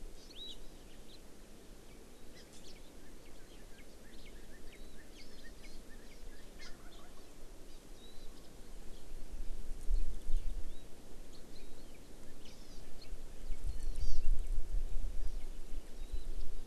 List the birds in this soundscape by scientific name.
Chlorodrepanis virens, Cardinalis cardinalis